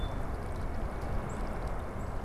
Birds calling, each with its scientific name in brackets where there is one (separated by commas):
Black-capped Chickadee (Poecile atricapillus)